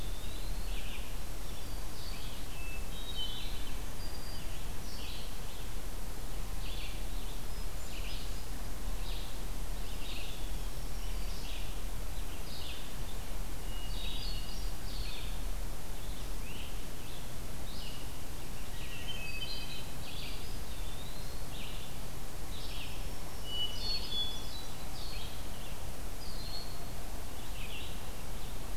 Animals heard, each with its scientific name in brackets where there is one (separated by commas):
Black-throated Green Warbler (Setophaga virens), Red-eyed Vireo (Vireo olivaceus), Eastern Wood-Pewee (Contopus virens), Hermit Thrush (Catharus guttatus), Great Crested Flycatcher (Myiarchus crinitus)